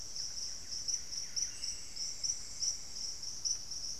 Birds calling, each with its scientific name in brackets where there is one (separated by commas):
Cinnamon-throated Woodcreeper (Dendrexetastes rufigula), unidentified bird, Buff-breasted Wren (Cantorchilus leucotis)